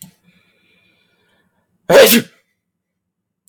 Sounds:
Sneeze